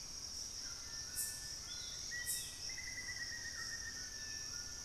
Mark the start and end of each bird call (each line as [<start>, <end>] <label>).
[0.00, 4.84] White-throated Toucan (Ramphastos tucanus)
[2.05, 4.25] Black-faced Antthrush (Formicarius analis)